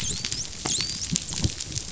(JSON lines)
{"label": "biophony, dolphin", "recorder": "SoundTrap 500"}